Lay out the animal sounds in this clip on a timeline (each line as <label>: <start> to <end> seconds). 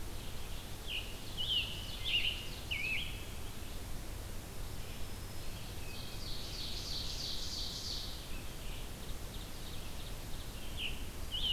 Red-eyed Vireo (Vireo olivaceus): 0.0 to 11.5 seconds
Scarlet Tanager (Piranga olivacea): 0.8 to 3.4 seconds
Ovenbird (Seiurus aurocapilla): 0.8 to 3.2 seconds
Black-throated Green Warbler (Setophaga virens): 4.5 to 6.0 seconds
Ovenbird (Seiurus aurocapilla): 5.7 to 8.4 seconds
Ovenbird (Seiurus aurocapilla): 8.8 to 10.8 seconds
Scarlet Tanager (Piranga olivacea): 10.6 to 11.5 seconds